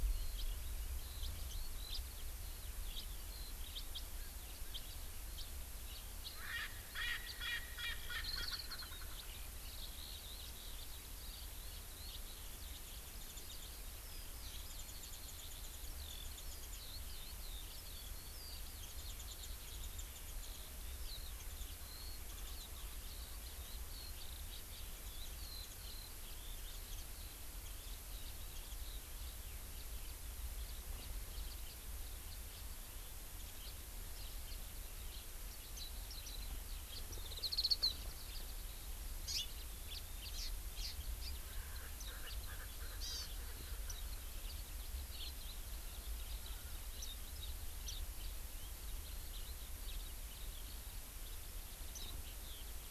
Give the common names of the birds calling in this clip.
Eurasian Skylark, House Finch, Erckel's Francolin, Warbling White-eye, Hawaii Amakihi